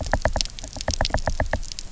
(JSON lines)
{"label": "biophony, knock", "recorder": "SoundTrap 300"}